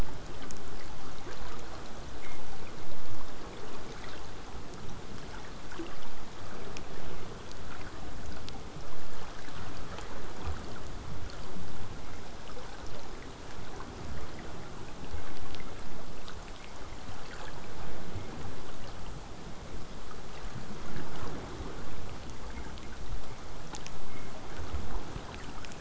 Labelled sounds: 20.8	25.7	vessel noise, 0 to 8.0 kHz

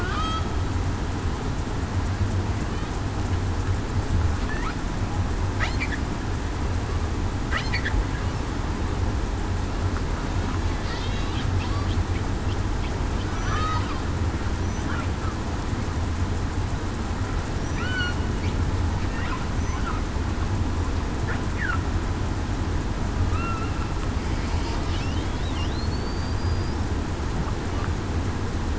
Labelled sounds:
13.5	13.8	killer whale, southern resident, 1.2 to 1.3 kHz
17.8	18.1	killer whale, southern resident, 1.3 to 1.5 kHz
23.3	23.7	killer whale, southern resident, 1.2 to 1.4 kHz
25.9	26.7	killer whale, southern resident, 4.3 to 4.9 kHz

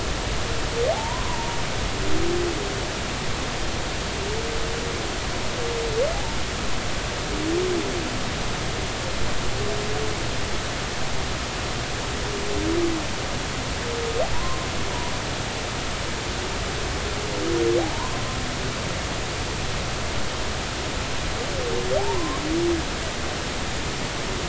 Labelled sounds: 0.9	1.6	humpback whale, 0.80 to 1.1 kHz
14.3	14.6	humpback whale, 0.93 to 1.2 kHz
22.0	22.4	humpback whale, 0.80 to 1.2 kHz

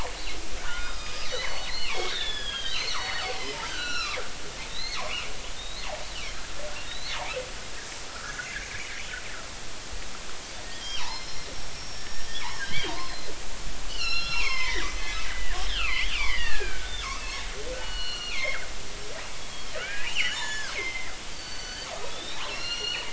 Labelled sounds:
0.6	3.4	killer whale, northern resident, G clan, 1.2 to 6.0 kHz
3.6	4.2	killer whale, northern resident, G clan, 1.1 to 5.9 kHz
4.6	5.2	killer whale, northern resident, G clan, 2.0 to 4.4 kHz
5.5	7.2	killer whale, northern resident, G clan, 3.6 to 4.5 kHz
8.1	8.9	killer whale, northern resident, G clan, 1.2 to 2.5 kHz
10.7	12.2	killer whale, northern resident, G clan, 0.80 to 5.9 kHz
12.6	13.3	killer whale, northern resident, G clan, 1.5 to 4.3 kHz
13.9	17.2	killer whale, northern resident, G clan, 0.86 to 6.1 kHz
17.8	18.6	killer whale, northern resident, G clan, 1.3 to 5.8 kHz
19.4	23.1	killer whale, northern resident, G clan, 1.2 to 7.3 kHz

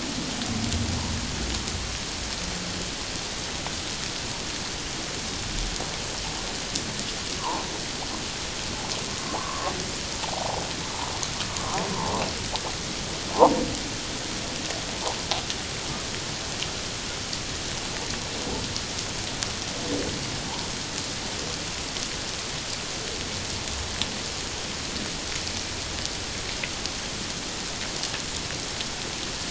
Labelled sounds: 7.4	7.7	humpback whale, 0.78 to 1.2 kHz
9.2	9.7	humpback whale, 0.78 to 1.2 kHz
10.2	10.6	humpback whale, 0.78 to 1.0 kHz
13.3	13.6	humpback whale, 0.78 to 1.1 kHz

